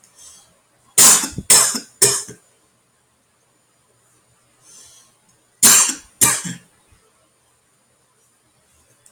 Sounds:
Cough